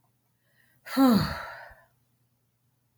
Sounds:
Sigh